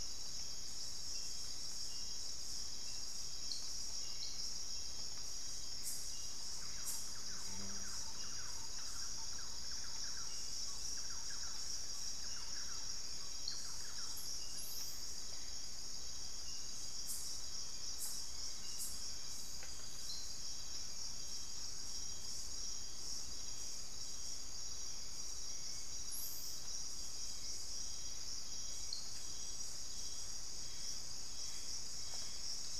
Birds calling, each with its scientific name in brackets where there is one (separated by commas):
Thrush-like Wren (Campylorhynchus turdinus), Hauxwell's Thrush (Turdus hauxwelli), Gray Antbird (Cercomacra cinerascens)